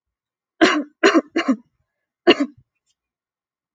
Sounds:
Cough